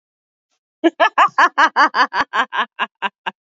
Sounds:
Laughter